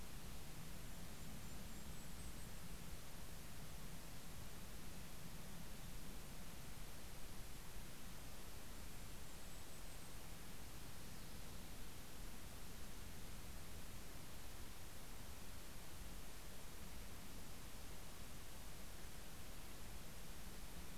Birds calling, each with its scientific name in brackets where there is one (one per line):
Golden-crowned Kinglet (Regulus satrapa)